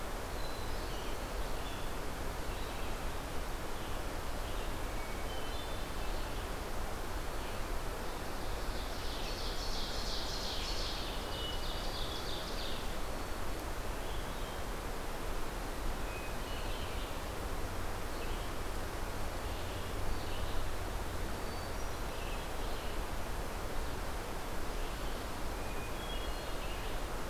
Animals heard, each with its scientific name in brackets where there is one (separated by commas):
Hermit Thrush (Catharus guttatus), Red-eyed Vireo (Vireo olivaceus), Ovenbird (Seiurus aurocapilla)